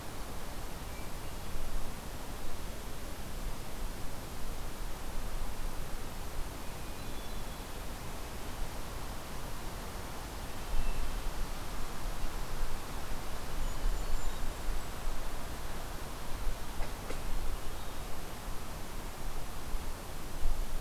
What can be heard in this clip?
Hermit Thrush, Golden-crowned Kinglet